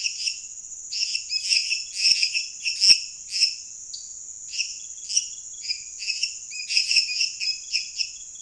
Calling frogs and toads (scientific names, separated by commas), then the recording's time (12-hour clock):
Dendropsophus minutus, Dendropsophus nanus
11:00pm